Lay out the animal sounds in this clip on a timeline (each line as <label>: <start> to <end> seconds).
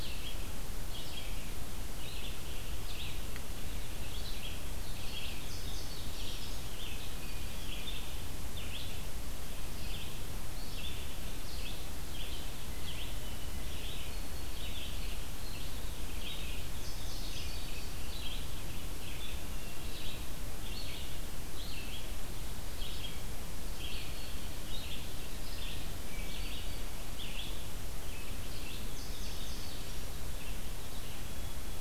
Red-eyed Vireo (Vireo olivaceus): 0.0 to 31.8 seconds
Indigo Bunting (Passerina cyanea): 5.2 to 6.3 seconds
Indigo Bunting (Passerina cyanea): 16.6 to 17.7 seconds
Indigo Bunting (Passerina cyanea): 28.5 to 29.8 seconds